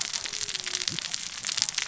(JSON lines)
{"label": "biophony, cascading saw", "recorder": "SoundTrap 600 or HydroMoth"}